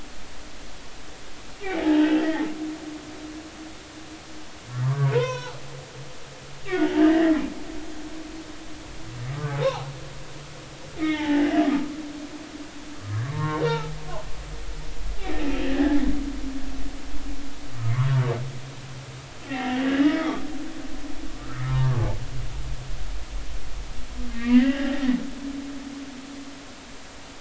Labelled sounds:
1.8	3.2	humpback whale, 0.80 to 3.4 kHz
4.7	5.6	humpback whale, 0.80 to 6.3 kHz
7.0	7.2	humpback whale, 1.5 to 1.8 kHz
9.3	9.9	humpback whale, 0.80 to 1.3 kHz
11.0	11.5	humpback whale, 0.80 to 3.1 kHz
13.2	14.0	humpback whale, 0.80 to 3.8 kHz
15.6	16.0	humpback whale, 1.5 to 2.0 kHz
19.5	20.5	humpback whale, 0.80 to 3.5 kHz
21.4	22.2	humpback whale, 0.80 to 1.6 kHz
24.3	24.9	humpback whale, 1.5 to 3.0 kHz

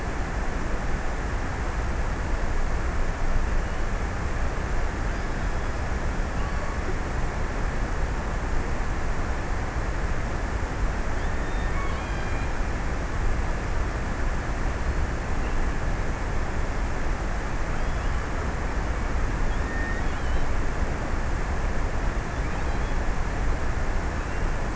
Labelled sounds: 11.1	13.4	killer whale, offshore, 1.9 to 4.7 kHz
17.1	18.7	killer whale, offshore, 2.1 to 3.8 kHz
19.4	21.0	killer whale, offshore, 2.1 to 4.2 kHz
22.2	23.5	killer whale, offshore, 1.9 to 4.4 kHz

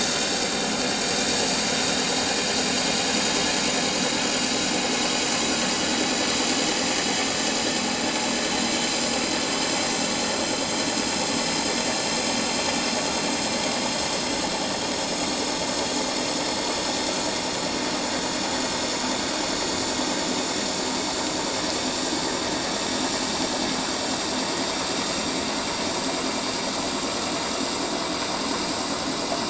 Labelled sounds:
2.1	2.4	vessel noise, 6.9 to 7.1 kHz
5.5	5.8	vessel noise, 7.2 to 7.3 kHz
7.8	8.1	vessel noise, 6.5 to 6.7 kHz
14.8	15.1	vessel noise, 5.3 to 5.7 kHz

